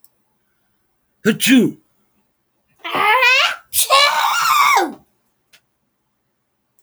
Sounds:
Sneeze